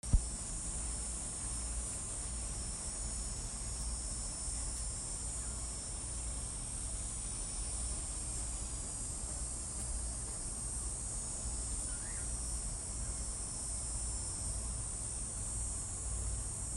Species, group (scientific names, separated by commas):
Hadoa texana, Cicadidae